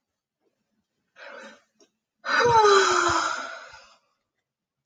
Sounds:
Sigh